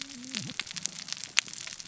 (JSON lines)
{"label": "biophony, cascading saw", "recorder": "SoundTrap 600 or HydroMoth"}